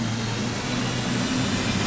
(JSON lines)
{"label": "anthrophony, boat engine", "recorder": "SoundTrap 500"}